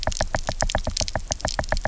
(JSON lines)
{"label": "biophony, knock", "recorder": "SoundTrap 300"}